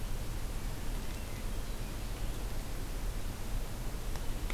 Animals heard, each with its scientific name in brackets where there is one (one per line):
Hermit Thrush (Catharus guttatus)